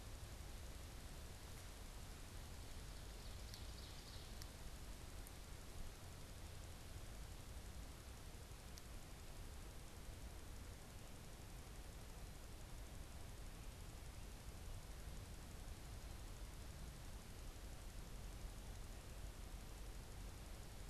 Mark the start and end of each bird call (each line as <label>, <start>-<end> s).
Ovenbird (Seiurus aurocapilla), 3.3-4.7 s